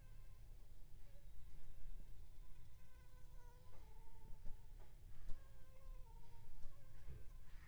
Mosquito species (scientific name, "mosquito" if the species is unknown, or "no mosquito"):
Aedes aegypti